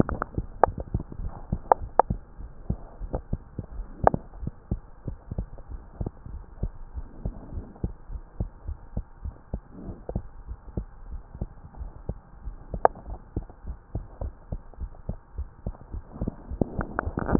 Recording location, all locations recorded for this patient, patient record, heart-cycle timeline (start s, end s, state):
tricuspid valve (TV)
aortic valve (AV)+pulmonary valve (PV)+tricuspid valve (TV)+mitral valve (MV)
#Age: Child
#Sex: Male
#Height: 122.0 cm
#Weight: 23.8 kg
#Pregnancy status: False
#Murmur: Absent
#Murmur locations: nan
#Most audible location: nan
#Systolic murmur timing: nan
#Systolic murmur shape: nan
#Systolic murmur grading: nan
#Systolic murmur pitch: nan
#Systolic murmur quality: nan
#Diastolic murmur timing: nan
#Diastolic murmur shape: nan
#Diastolic murmur grading: nan
#Diastolic murmur pitch: nan
#Diastolic murmur quality: nan
#Outcome: Normal
#Campaign: 2015 screening campaign
0.00	4.29	unannotated
4.29	4.40	diastole
4.40	4.51	S1
4.51	4.69	systole
4.69	4.81	S2
4.81	5.05	diastole
5.05	5.16	S1
5.16	5.36	systole
5.36	5.46	S2
5.46	5.70	diastole
5.70	5.82	S1
5.82	5.98	systole
5.98	6.12	S2
6.12	6.32	diastole
6.32	6.44	S1
6.44	6.60	systole
6.60	6.74	S2
6.74	6.95	diastole
6.95	7.05	S1
7.05	7.22	systole
7.22	7.33	S2
7.33	7.54	diastole
7.54	7.68	S1
7.68	7.82	systole
7.82	7.96	S2
7.96	8.10	diastole
8.10	8.22	S1
8.22	8.38	systole
8.38	8.50	S2
8.50	8.66	diastole
8.66	8.78	S1
8.78	8.95	systole
8.95	9.05	S2
9.05	9.23	diastole
9.23	9.33	S1
9.33	9.54	systole
9.54	9.60	S2
9.60	9.85	diastole
9.85	9.95	S1
9.95	10.12	systole
10.12	10.24	S2
10.24	10.48	diastole
10.48	10.58	S1
10.58	10.74	systole
10.74	10.85	S2
10.85	11.08	diastole
11.08	11.22	S1
11.22	11.39	systole
11.39	11.49	S2
11.49	11.77	diastole
11.77	11.91	S1
11.91	12.07	systole
12.07	12.17	S2
12.17	12.42	diastole
12.42	17.39	unannotated